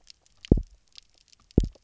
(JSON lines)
{"label": "biophony, double pulse", "recorder": "SoundTrap 300"}